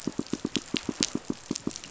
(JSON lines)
{"label": "biophony, pulse", "recorder": "SoundTrap 500"}